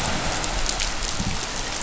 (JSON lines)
{"label": "anthrophony, boat engine", "recorder": "SoundTrap 500"}